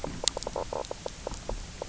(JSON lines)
{"label": "biophony, knock croak", "recorder": "SoundTrap 300"}